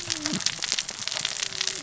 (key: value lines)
label: biophony, cascading saw
recorder: SoundTrap 600 or HydroMoth